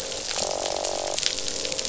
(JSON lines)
{"label": "biophony, croak", "recorder": "SoundTrap 500"}